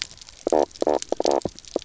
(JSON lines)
{"label": "biophony, knock croak", "recorder": "SoundTrap 300"}